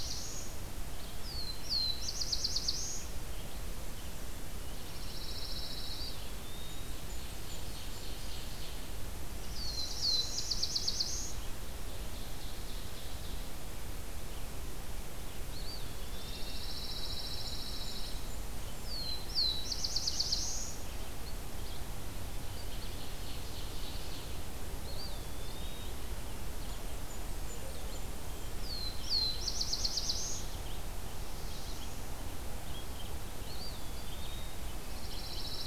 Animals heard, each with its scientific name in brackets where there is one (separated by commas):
Black-throated Blue Warbler (Setophaga caerulescens), Blackburnian Warbler (Setophaga fusca), Red-eyed Vireo (Vireo olivaceus), Ovenbird (Seiurus aurocapilla), Eastern Wood-Pewee (Contopus virens), Pine Warbler (Setophaga pinus)